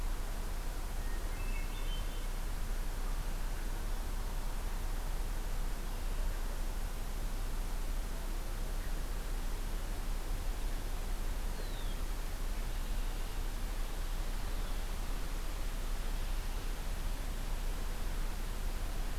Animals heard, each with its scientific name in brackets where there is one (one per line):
Red-winged Blackbird (Agelaius phoeniceus)
Hermit Thrush (Catharus guttatus)